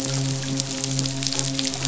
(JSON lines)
{"label": "biophony, midshipman", "recorder": "SoundTrap 500"}